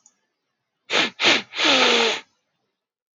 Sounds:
Sniff